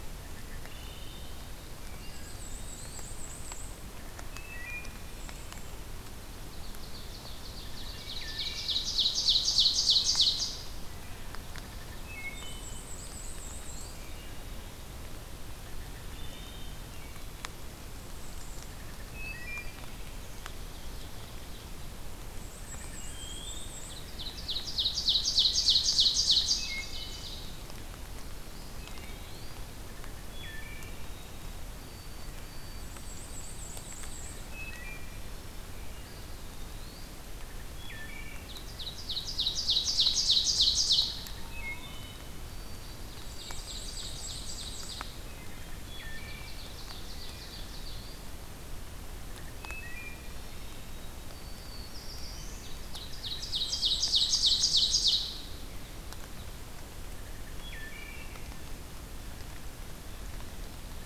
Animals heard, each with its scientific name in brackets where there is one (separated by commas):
Black-capped Chickadee (Poecile atricapillus), Ovenbird (Seiurus aurocapilla), White-throated Sparrow (Zonotrichia albicollis), Black-throated Blue Warbler (Setophaga caerulescens), Eastern Wood-Pewee (Contopus virens), Black-and-white Warbler (Mniotilta varia), unidentified call, Wood Thrush (Hylocichla mustelina)